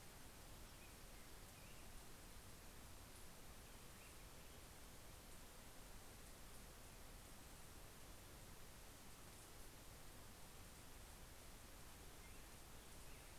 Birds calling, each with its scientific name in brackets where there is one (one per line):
Black-headed Grosbeak (Pheucticus melanocephalus)